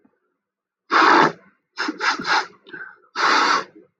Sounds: Sniff